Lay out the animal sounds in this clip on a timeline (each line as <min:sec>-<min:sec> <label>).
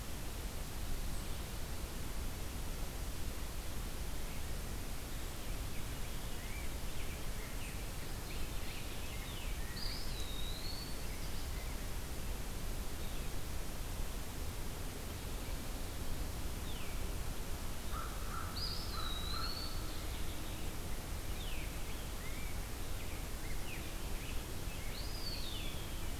0:05.3-0:09.9 Veery (Catharus fuscescens)
0:09.6-0:11.6 Eastern Wood-Pewee (Contopus virens)
0:16.4-0:17.0 Veery (Catharus fuscescens)
0:17.8-0:19.7 American Crow (Corvus brachyrhynchos)
0:18.4-0:20.0 Eastern Wood-Pewee (Contopus virens)
0:21.3-0:25.1 Veery (Catharus fuscescens)
0:24.7-0:26.2 Eastern Wood-Pewee (Contopus virens)